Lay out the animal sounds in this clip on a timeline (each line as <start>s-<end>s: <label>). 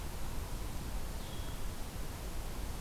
1.3s-1.7s: Blue-headed Vireo (Vireo solitarius)